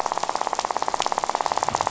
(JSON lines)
{"label": "biophony, rattle", "recorder": "SoundTrap 500"}